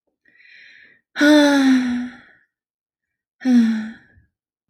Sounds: Sigh